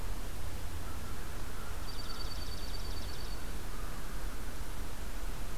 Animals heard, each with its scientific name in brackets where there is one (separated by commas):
Dark-eyed Junco (Junco hyemalis), American Crow (Corvus brachyrhynchos)